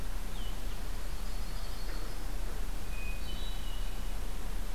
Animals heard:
Yellow-rumped Warbler (Setophaga coronata), Hermit Thrush (Catharus guttatus)

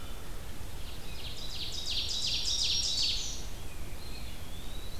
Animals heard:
Ovenbird (Seiurus aurocapilla), Eastern Wood-Pewee (Contopus virens), Black-throated Green Warbler (Setophaga virens)

